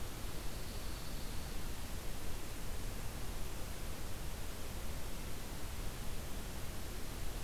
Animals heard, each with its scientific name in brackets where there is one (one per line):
Pine Warbler (Setophaga pinus)